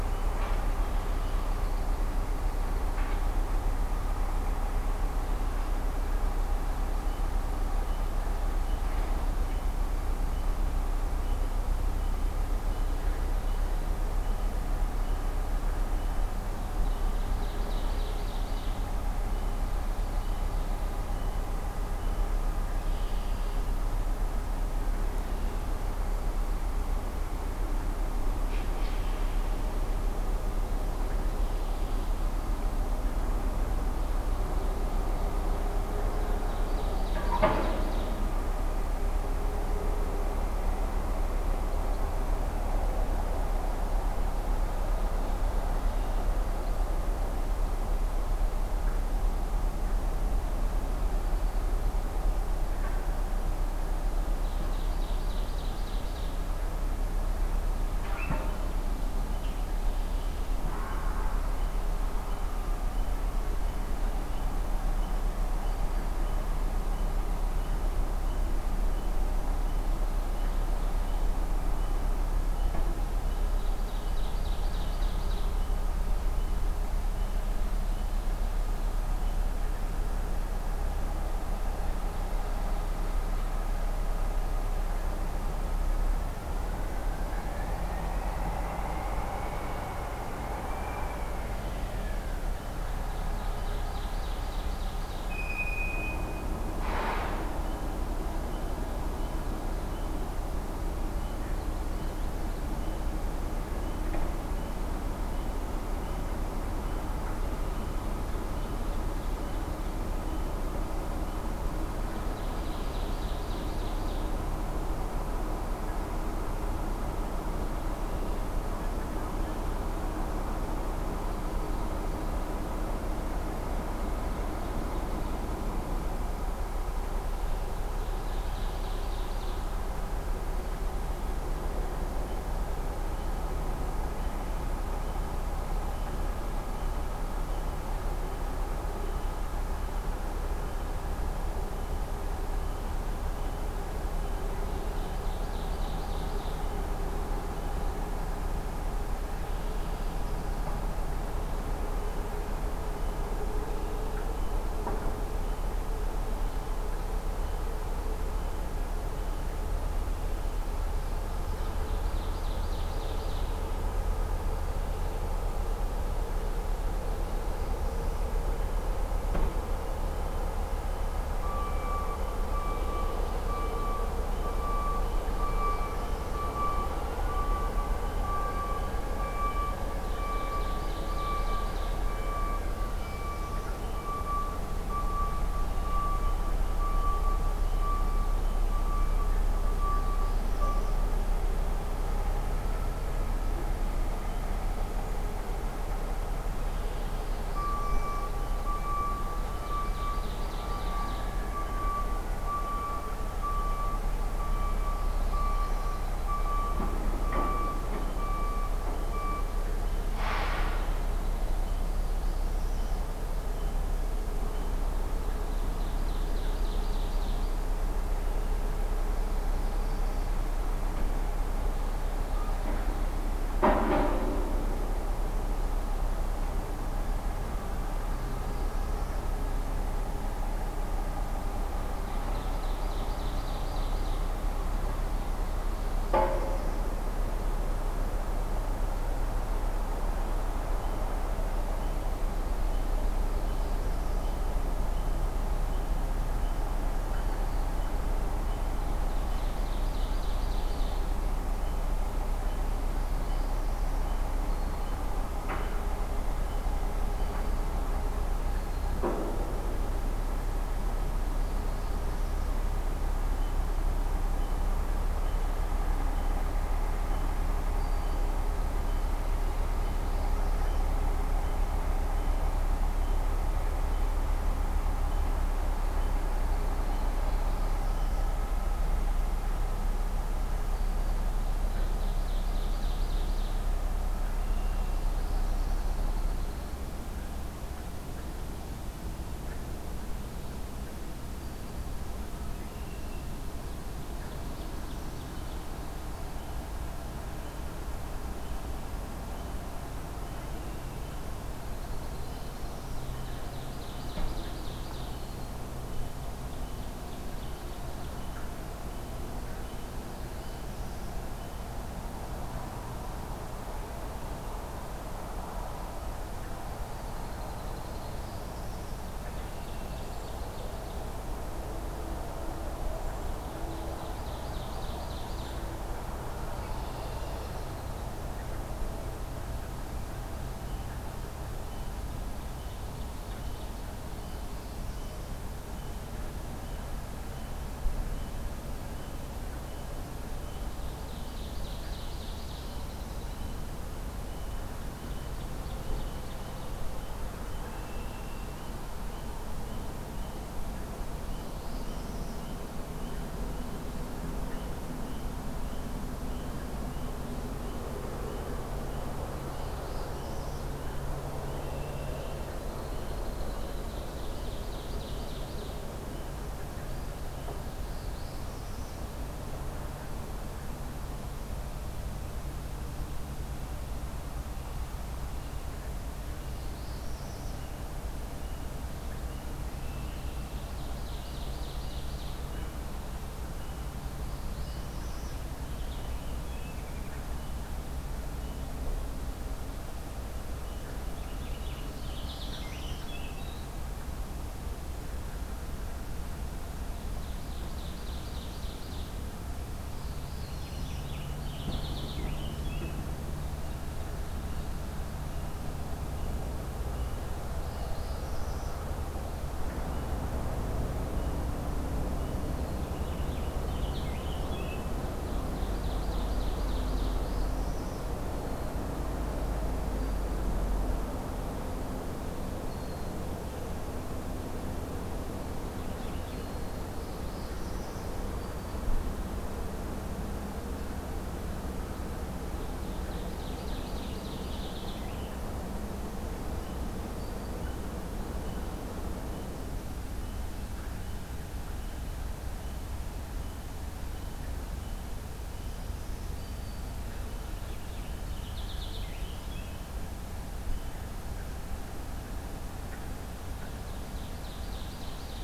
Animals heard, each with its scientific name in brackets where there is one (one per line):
Red-winged Blackbird (Agelaius phoeniceus)
unidentified call
Ovenbird (Seiurus aurocapilla)
Northern Parula (Setophaga americana)
Purple Finch (Haemorhous purpureus)
Black-throated Green Warbler (Setophaga virens)
Common Yellowthroat (Geothlypis trichas)